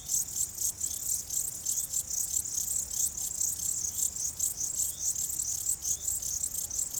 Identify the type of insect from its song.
orthopteran